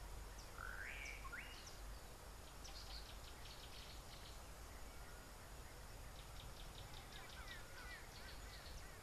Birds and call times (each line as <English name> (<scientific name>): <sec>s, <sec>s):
Gray-backed Camaroptera (Camaroptera brevicaudata): 7.1s
Yellow-bellied Greenbul (Chlorocichla flaviventris): 8.0s